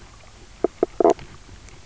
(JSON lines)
{"label": "biophony, knock croak", "recorder": "SoundTrap 300"}